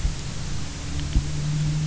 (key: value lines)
label: anthrophony, boat engine
recorder: SoundTrap 300